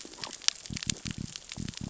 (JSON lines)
{"label": "biophony", "recorder": "SoundTrap 600 or HydroMoth"}